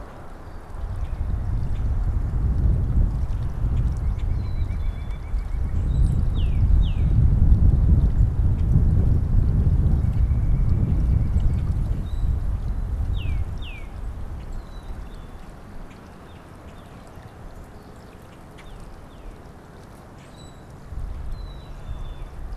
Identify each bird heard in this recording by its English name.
White-breasted Nuthatch, Common Grackle, Tufted Titmouse, Black-capped Chickadee